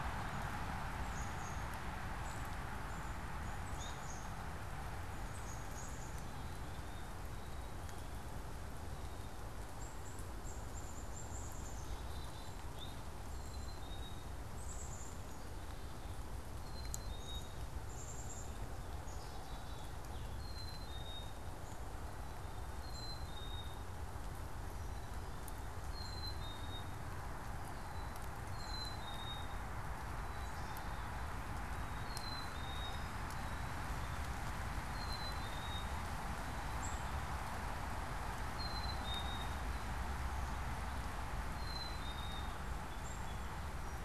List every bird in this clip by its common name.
Black-capped Chickadee, unidentified bird